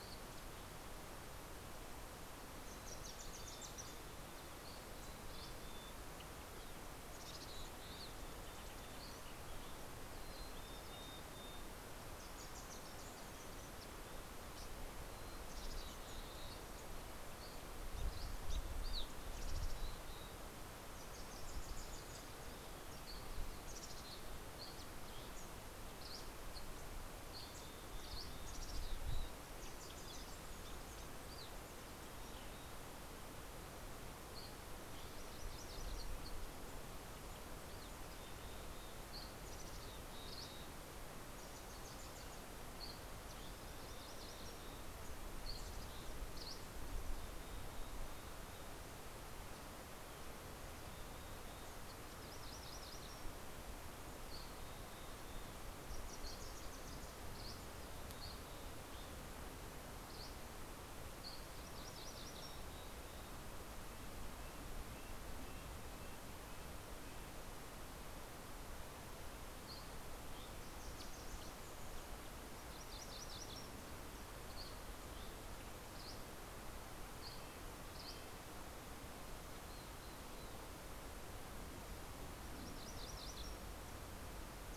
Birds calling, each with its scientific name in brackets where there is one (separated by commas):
Dusky Flycatcher (Empidonax oberholseri), Mountain Chickadee (Poecile gambeli), Wilson's Warbler (Cardellina pusilla), Red-breasted Nuthatch (Sitta canadensis), MacGillivray's Warbler (Geothlypis tolmiei)